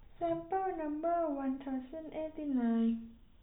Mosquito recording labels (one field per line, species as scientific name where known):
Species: no mosquito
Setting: cup